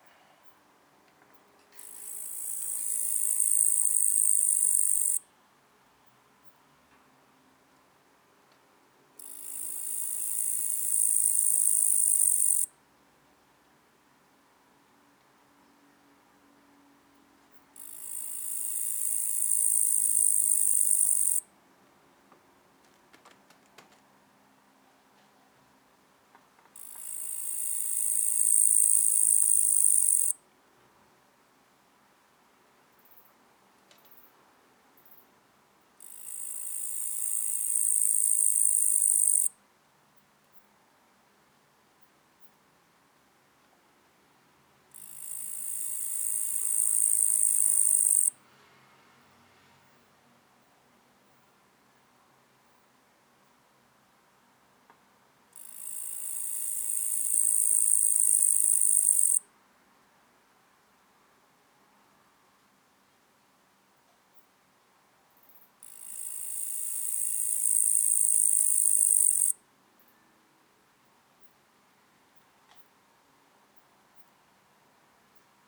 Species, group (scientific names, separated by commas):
Tettigonia caudata, Orthoptera